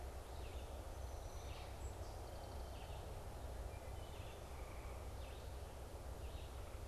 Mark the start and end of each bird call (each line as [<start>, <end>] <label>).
[0.00, 6.87] Red-eyed Vireo (Vireo olivaceus)
[0.61, 3.11] Song Sparrow (Melospiza melodia)
[3.51, 4.21] Wood Thrush (Hylocichla mustelina)